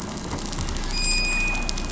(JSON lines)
{"label": "anthrophony, boat engine", "recorder": "SoundTrap 500"}